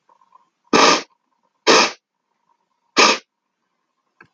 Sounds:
Sniff